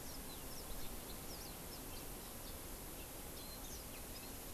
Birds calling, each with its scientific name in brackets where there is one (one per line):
Yellow-fronted Canary (Crithagra mozambica)
House Finch (Haemorhous mexicanus)
Warbling White-eye (Zosterops japonicus)